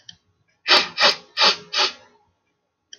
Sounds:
Sniff